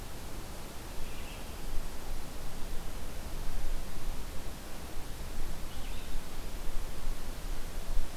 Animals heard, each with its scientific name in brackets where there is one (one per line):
Red-eyed Vireo (Vireo olivaceus)